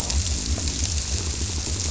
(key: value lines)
label: biophony
recorder: SoundTrap 300